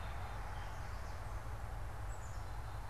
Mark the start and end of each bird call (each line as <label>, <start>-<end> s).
Gray Catbird (Dumetella carolinensis), 0.1-2.9 s
Black-capped Chickadee (Poecile atricapillus), 1.9-2.9 s